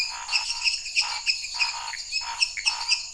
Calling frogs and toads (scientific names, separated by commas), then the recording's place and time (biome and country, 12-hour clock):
Dendropsophus minutus, Dendropsophus nanus, Leptodactylus podicipinus, Pithecopus azureus, Scinax fuscovarius
Cerrado, Brazil, 8:30pm